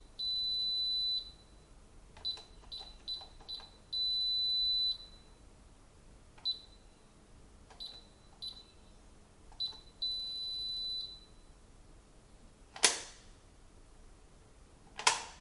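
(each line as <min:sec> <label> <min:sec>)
0:00.1 A long beep sounds. 0:01.5
0:02.1 Multiple short beeps. 0:03.6
0:03.7 A long beep sounds. 0:05.0
0:06.3 A short beep sounds. 0:06.6
0:07.6 Multiple short beeps. 0:08.7
0:09.4 A short beep sounds. 0:09.9
0:09.9 A long beep sounds. 0:11.4
0:12.7 A loud crack. 0:13.0
0:15.0 A loud crack. 0:15.3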